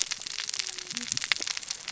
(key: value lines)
label: biophony, cascading saw
recorder: SoundTrap 600 or HydroMoth